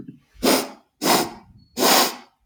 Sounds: Sniff